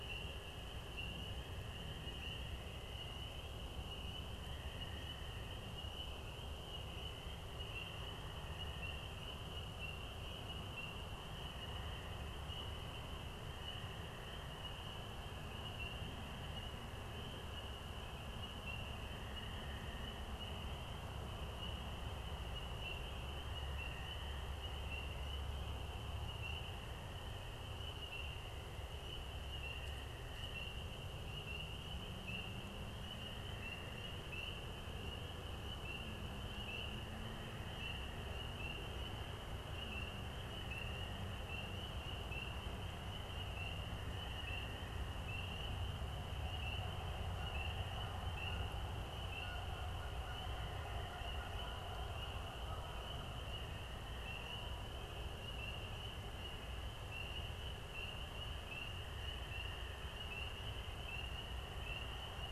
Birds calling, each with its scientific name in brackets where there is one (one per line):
Canada Goose (Branta canadensis)